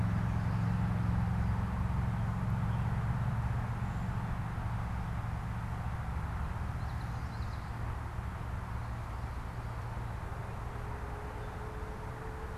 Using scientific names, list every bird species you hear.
Geothlypis trichas